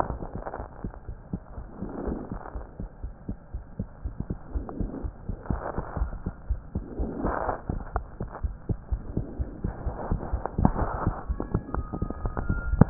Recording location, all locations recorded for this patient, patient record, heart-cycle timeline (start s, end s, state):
aortic valve (AV)
aortic valve (AV)+pulmonary valve (PV)+tricuspid valve (TV)+mitral valve (MV)
#Age: Child
#Sex: Male
#Height: 110.0 cm
#Weight: 15.1 kg
#Pregnancy status: False
#Murmur: Absent
#Murmur locations: nan
#Most audible location: nan
#Systolic murmur timing: nan
#Systolic murmur shape: nan
#Systolic murmur grading: nan
#Systolic murmur pitch: nan
#Systolic murmur quality: nan
#Diastolic murmur timing: nan
#Diastolic murmur shape: nan
#Diastolic murmur grading: nan
#Diastolic murmur pitch: nan
#Diastolic murmur quality: nan
#Outcome: Normal
#Campaign: 2015 screening campaign
0.00	2.04	unannotated
2.04	2.18	S1
2.18	2.32	systole
2.32	2.40	S2
2.40	2.53	diastole
2.53	2.62	S1
2.62	2.77	systole
2.77	2.88	S2
2.88	3.01	diastole
3.01	3.11	S1
3.11	3.26	systole
3.26	3.36	S2
3.36	3.52	diastole
3.52	3.62	S1
3.62	3.77	systole
3.77	3.88	S2
3.88	4.03	diastole
4.03	4.14	S1
4.14	4.27	systole
4.27	4.40	S2
4.40	4.52	diastole
4.52	4.63	S1
4.63	4.78	systole
4.78	4.89	S2
4.89	5.01	diastole
5.01	5.14	S1
5.14	12.90	unannotated